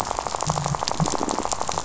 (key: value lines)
label: biophony, rattle
recorder: SoundTrap 500